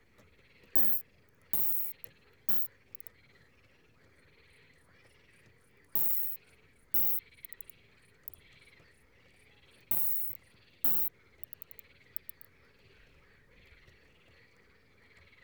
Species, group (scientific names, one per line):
Isophya rhodopensis
Orthoptera